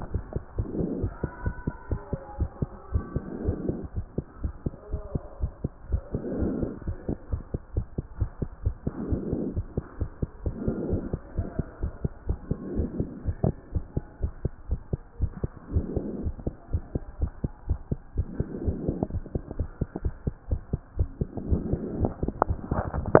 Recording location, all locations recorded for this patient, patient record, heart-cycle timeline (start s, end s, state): pulmonary valve (PV)
aortic valve (AV)+pulmonary valve (PV)+tricuspid valve (TV)+mitral valve (MV)
#Age: Child
#Sex: Male
#Height: 127.0 cm
#Weight: 36.3 kg
#Pregnancy status: False
#Murmur: Absent
#Murmur locations: nan
#Most audible location: nan
#Systolic murmur timing: nan
#Systolic murmur shape: nan
#Systolic murmur grading: nan
#Systolic murmur pitch: nan
#Systolic murmur quality: nan
#Diastolic murmur timing: nan
#Diastolic murmur shape: nan
#Diastolic murmur grading: nan
#Diastolic murmur pitch: nan
#Diastolic murmur quality: nan
#Outcome: Abnormal
#Campaign: 2014 screening campaign
0.00	0.12	diastole
0.12	0.22	S1
0.22	0.34	systole
0.34	0.42	S2
0.42	0.58	diastole
0.58	0.68	S1
0.68	0.80	systole
0.80	0.88	S2
0.88	1.00	diastole
1.00	1.12	S1
1.12	1.22	systole
1.22	1.30	S2
1.30	1.44	diastole
1.44	1.54	S1
1.54	1.66	systole
1.66	1.74	S2
1.74	1.90	diastole
1.90	2.00	S1
2.00	2.12	systole
2.12	2.20	S2
2.20	2.38	diastole
2.38	2.50	S1
2.50	2.60	systole
2.60	2.70	S2
2.70	2.92	diastole
2.92	3.04	S1
3.04	3.14	systole
3.14	3.22	S2
3.22	3.44	diastole
3.44	3.58	S1
3.58	3.68	systole
3.68	3.78	S2
3.78	3.96	diastole
3.96	4.06	S1
4.06	4.16	systole
4.16	4.24	S2
4.24	4.42	diastole
4.42	4.52	S1
4.52	4.64	systole
4.64	4.74	S2
4.74	4.92	diastole
4.92	5.02	S1
5.02	5.14	systole
5.14	5.22	S2
5.22	5.40	diastole
5.40	5.52	S1
5.52	5.62	systole
5.62	5.72	S2
5.72	5.90	diastole
5.90	6.02	S1
6.02	6.12	systole
6.12	6.22	S2
6.22	6.36	diastole
6.36	6.52	S1
6.52	6.60	systole
6.60	6.70	S2
6.70	6.86	diastole
6.86	6.96	S1
6.96	7.08	systole
7.08	7.16	S2
7.16	7.32	diastole
7.32	7.42	S1
7.42	7.52	systole
7.52	7.60	S2
7.60	7.76	diastole
7.76	7.86	S1
7.86	7.96	systole
7.96	8.04	S2
8.04	8.20	diastole
8.20	8.30	S1
8.30	8.40	systole
8.40	8.50	S2
8.50	8.64	diastole
8.64	8.74	S1
8.74	8.86	systole
8.86	8.94	S2
8.94	9.08	diastole
9.08	9.22	S1
9.22	9.30	systole
9.30	9.42	S2
9.42	9.56	diastole
9.56	9.66	S1
9.66	9.76	systole
9.76	9.84	S2
9.84	10.00	diastole
10.00	10.10	S1
10.10	10.20	systole
10.20	10.30	S2
10.30	10.46	diastole
10.46	10.54	S1
10.54	10.64	systole
10.64	10.74	S2
10.74	10.90	diastole
10.90	11.02	S1
11.02	11.12	systole
11.12	11.20	S2
11.20	11.36	diastole
11.36	11.48	S1
11.48	11.58	systole
11.58	11.66	S2
11.66	11.82	diastole
11.82	11.92	S1
11.92	12.02	systole
12.02	12.12	S2
12.12	12.28	diastole
12.28	12.38	S1
12.38	12.50	systole
12.50	12.58	S2
12.58	12.74	diastole
12.74	12.88	S1
12.88	12.98	systole
12.98	13.08	S2
13.08	13.26	diastole
13.26	13.36	S1
13.36	13.44	systole
13.44	13.54	S2
13.54	13.74	diastole
13.74	13.84	S1
13.84	13.96	systole
13.96	14.04	S2
14.04	14.22	diastole
14.22	14.32	S1
14.32	14.44	systole
14.44	14.52	S2
14.52	14.70	diastole
14.70	14.80	S1
14.80	14.92	systole
14.92	15.00	S2
15.00	15.20	diastole
15.20	15.32	S1
15.32	15.42	systole
15.42	15.50	S2
15.50	15.72	diastole
15.72	15.86	S1
15.86	15.94	systole
15.94	16.04	S2
16.04	16.22	diastole
16.22	16.34	S1
16.34	16.46	systole
16.46	16.54	S2
16.54	16.72	diastole
16.72	16.82	S1
16.82	16.94	systole
16.94	17.02	S2
17.02	17.20	diastole
17.20	17.32	S1
17.32	17.42	systole
17.42	17.52	S2
17.52	17.68	diastole
17.68	17.78	S1
17.78	17.90	systole
17.90	17.98	S2
17.98	18.16	diastole
18.16	18.26	S1
18.26	18.38	systole
18.38	18.46	S2
18.46	18.64	diastole
18.64	18.76	S1
18.76	18.86	systole
18.86	18.98	S2
18.98	19.12	diastole
19.12	19.24	S1
19.24	19.34	systole
19.34	19.42	S2
19.42	19.58	diastole
19.58	19.68	S1
19.68	19.80	systole
19.80	19.88	S2
19.88	20.04	diastole
20.04	20.14	S1
20.14	20.26	systole
20.26	20.34	S2
20.34	20.50	diastole
20.50	20.60	S1
20.60	20.72	systole
20.72	20.80	S2
20.80	20.98	diastole
20.98	21.08	S1
21.08	21.20	systole
21.20	21.28	S2
21.28	21.48	diastole